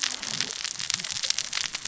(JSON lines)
{"label": "biophony, cascading saw", "recorder": "SoundTrap 600 or HydroMoth"}